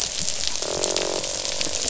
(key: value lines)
label: biophony, croak
recorder: SoundTrap 500